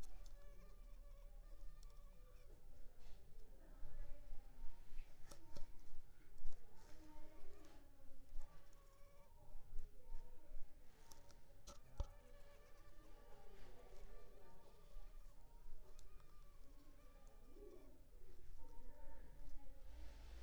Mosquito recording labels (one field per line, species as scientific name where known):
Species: Culex pipiens complex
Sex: female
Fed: unfed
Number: one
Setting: cup